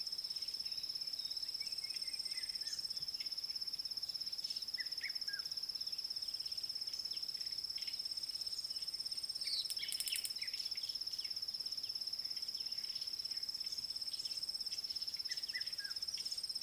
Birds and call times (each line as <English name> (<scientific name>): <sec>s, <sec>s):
Red-chested Cuckoo (Cuculus solitarius): 5.1s, 15.6s
White Helmetshrike (Prionops plumatus): 10.0s